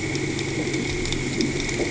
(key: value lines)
label: anthrophony, boat engine
recorder: HydroMoth